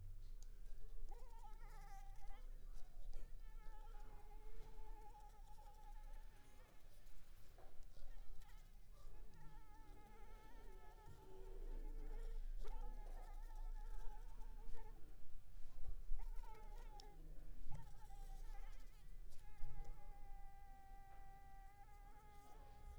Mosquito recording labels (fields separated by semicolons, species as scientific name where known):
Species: Anopheles arabiensis; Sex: female; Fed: unfed; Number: one; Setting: cup